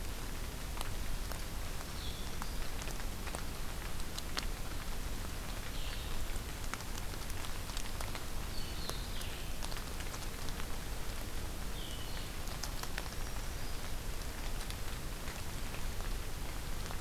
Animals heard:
Black-throated Green Warbler (Setophaga virens)
Blue-headed Vireo (Vireo solitarius)

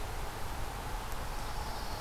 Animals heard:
Pine Warbler (Setophaga pinus)

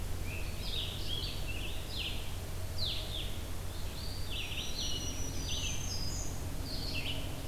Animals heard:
Scarlet Tanager (Piranga olivacea)
Eastern Wood-Pewee (Contopus virens)
Red-eyed Vireo (Vireo olivaceus)
Black-throated Green Warbler (Setophaga virens)

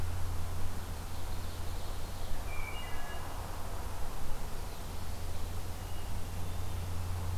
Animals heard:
Ovenbird (Seiurus aurocapilla)
Wood Thrush (Hylocichla mustelina)

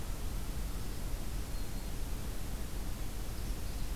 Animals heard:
Black-throated Green Warbler (Setophaga virens)
Magnolia Warbler (Setophaga magnolia)

